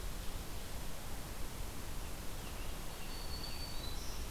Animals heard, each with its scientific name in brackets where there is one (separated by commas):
Black-throated Green Warbler (Setophaga virens), Scarlet Tanager (Piranga olivacea)